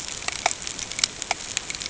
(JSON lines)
{"label": "ambient", "recorder": "HydroMoth"}